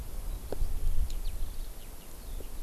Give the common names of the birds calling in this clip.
Eurasian Skylark